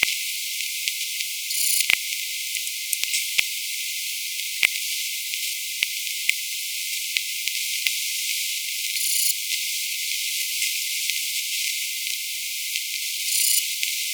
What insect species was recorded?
Rhacocleis germanica